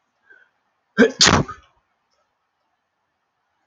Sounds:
Sneeze